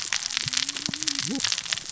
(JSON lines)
{"label": "biophony, cascading saw", "recorder": "SoundTrap 600 or HydroMoth"}